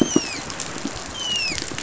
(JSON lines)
{"label": "biophony, dolphin", "recorder": "SoundTrap 500"}